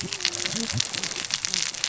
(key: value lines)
label: biophony, cascading saw
recorder: SoundTrap 600 or HydroMoth